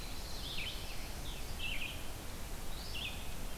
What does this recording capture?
Black-throated Blue Warbler, Red-eyed Vireo